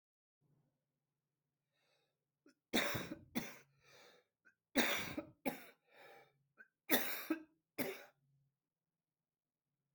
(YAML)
expert_labels:
- quality: ok
  cough_type: wet
  dyspnea: false
  wheezing: false
  stridor: false
  choking: false
  congestion: true
  nothing: false
  diagnosis: lower respiratory tract infection
  severity: mild
age: 59
gender: male
respiratory_condition: true
fever_muscle_pain: false
status: symptomatic